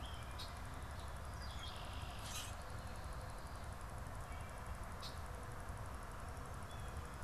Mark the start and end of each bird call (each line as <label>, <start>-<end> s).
Red-winged Blackbird (Agelaius phoeniceus), 0.3-0.7 s
Red-winged Blackbird (Agelaius phoeniceus), 1.2-2.5 s
Common Grackle (Quiscalus quiscula), 2.1-2.7 s
Red-winged Blackbird (Agelaius phoeniceus), 4.9-5.4 s
Blue Jay (Cyanocitta cristata), 6.5-7.1 s